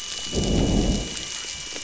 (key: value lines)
label: biophony, growl
recorder: SoundTrap 500